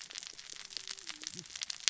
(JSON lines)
{"label": "biophony, cascading saw", "recorder": "SoundTrap 600 or HydroMoth"}